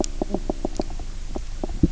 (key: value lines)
label: biophony, knock croak
recorder: SoundTrap 300